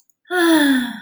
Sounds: Sigh